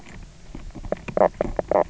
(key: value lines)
label: biophony, knock croak
recorder: SoundTrap 300